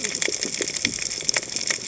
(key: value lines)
label: biophony, cascading saw
recorder: HydroMoth